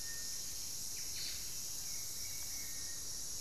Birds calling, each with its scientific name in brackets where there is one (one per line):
Buff-breasted Wren (Cantorchilus leucotis)